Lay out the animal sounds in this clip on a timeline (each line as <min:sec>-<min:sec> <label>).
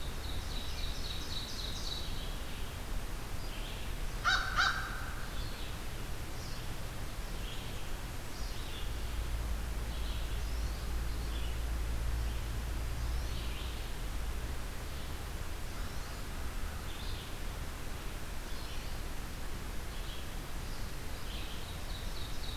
0:00.0-0:02.6 Ovenbird (Seiurus aurocapilla)
0:00.0-0:22.6 Red-eyed Vireo (Vireo olivaceus)
0:03.9-0:05.3 American Crow (Corvus brachyrhynchos)
0:10.2-0:10.8 American Goldfinch (Spinus tristis)
0:13.0-0:13.4 American Goldfinch (Spinus tristis)
0:15.6-0:16.2 American Goldfinch (Spinus tristis)
0:18.4-0:18.9 American Goldfinch (Spinus tristis)
0:21.4-0:22.6 Ovenbird (Seiurus aurocapilla)